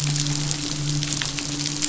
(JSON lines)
{"label": "biophony, midshipman", "recorder": "SoundTrap 500"}